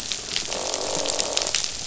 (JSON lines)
{"label": "biophony, croak", "recorder": "SoundTrap 500"}